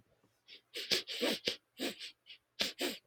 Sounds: Sniff